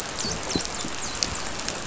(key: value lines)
label: biophony, dolphin
recorder: SoundTrap 500